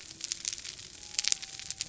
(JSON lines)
{"label": "biophony", "recorder": "SoundTrap 300"}